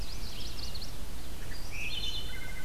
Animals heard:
Chestnut-sided Warbler (Setophaga pensylvanica)
Wood Thrush (Hylocichla mustelina)
Red-eyed Vireo (Vireo olivaceus)

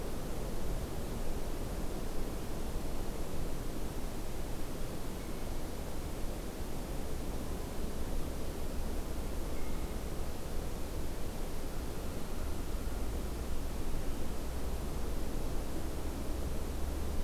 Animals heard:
American Crow (Corvus brachyrhynchos)
Blue Jay (Cyanocitta cristata)

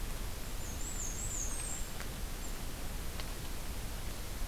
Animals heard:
Black-and-white Warbler (Mniotilta varia)

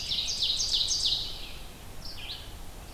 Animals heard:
Ovenbird (Seiurus aurocapilla)
Red-eyed Vireo (Vireo olivaceus)

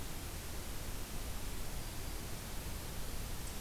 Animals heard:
Black-throated Green Warbler (Setophaga virens)

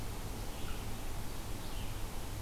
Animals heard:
Red-eyed Vireo (Vireo olivaceus)

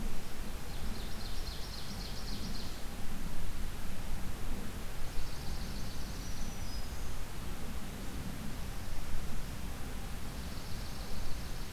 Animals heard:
Swamp Sparrow (Melospiza georgiana)
Black-throated Green Warbler (Setophaga virens)
Ovenbird (Seiurus aurocapilla)

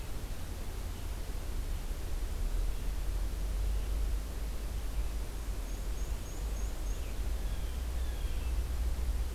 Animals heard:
Black-and-white Warbler (Mniotilta varia)
Blue Jay (Cyanocitta cristata)

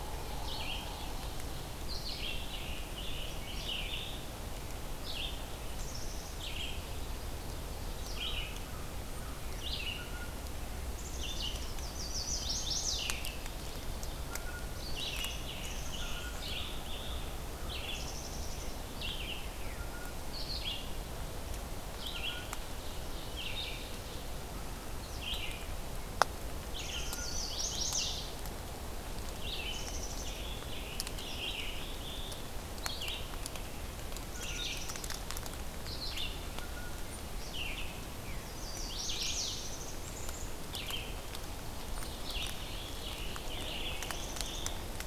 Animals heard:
Rose-breasted Grosbeak (Pheucticus ludovicianus)
Black-capped Chickadee (Poecile atricapillus)
Chestnut-sided Warbler (Setophaga pensylvanica)
Ovenbird (Seiurus aurocapilla)
Red-eyed Vireo (Vireo olivaceus)

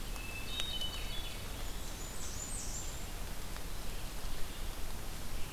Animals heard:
Blackburnian Warbler (Setophaga fusca)
Ovenbird (Seiurus aurocapilla)
Hermit Thrush (Catharus guttatus)

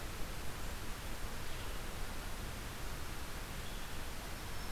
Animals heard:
Red-eyed Vireo (Vireo olivaceus)
Black-throated Green Warbler (Setophaga virens)

